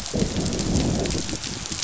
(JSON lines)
{"label": "biophony, growl", "recorder": "SoundTrap 500"}